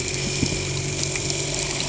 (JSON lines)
{"label": "anthrophony, boat engine", "recorder": "HydroMoth"}